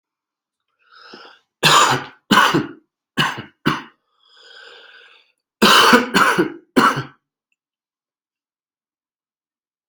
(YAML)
expert_labels:
- quality: ok
  cough_type: dry
  dyspnea: false
  wheezing: false
  stridor: false
  choking: false
  congestion: false
  nothing: true
  diagnosis: COVID-19
  severity: mild
age: 42
gender: male
respiratory_condition: false
fever_muscle_pain: false
status: symptomatic